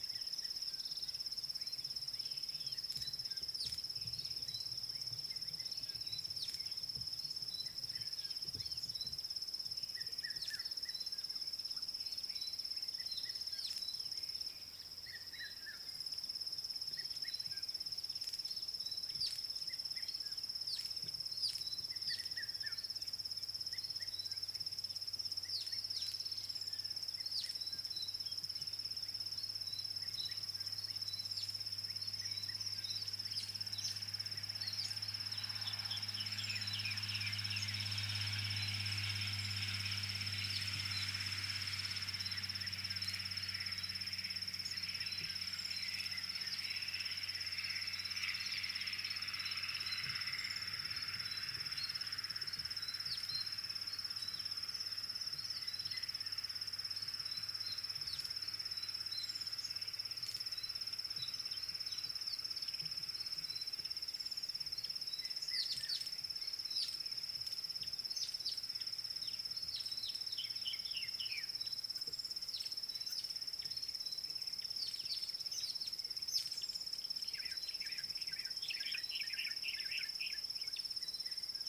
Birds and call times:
White Helmetshrike (Prionops plumatus): 6.4s, 20.8s, 65.8s, 70.6s, 79.2s
Red-chested Cuckoo (Cuculus solitarius): 10.3s, 15.4s

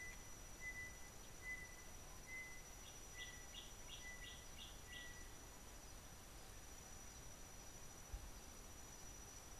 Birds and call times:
Tropical Boubou (Laniarius major): 1.6s

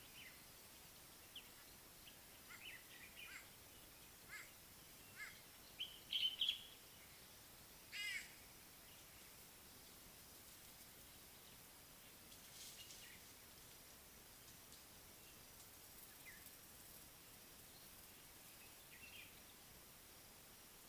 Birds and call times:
Scarlet-chested Sunbird (Chalcomitra senegalensis): 1.3s
White-bellied Go-away-bird (Corythaixoides leucogaster): 4.3s, 8.0s
Common Bulbul (Pycnonotus barbatus): 6.1s

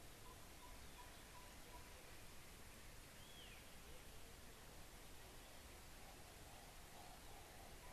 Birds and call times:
Waller's Starling (Onychognathus walleri): 3.5s

